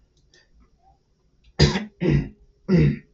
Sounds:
Throat clearing